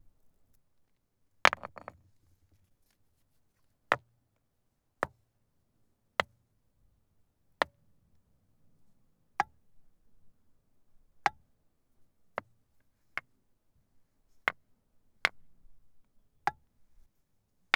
is someone moving a piece?
yes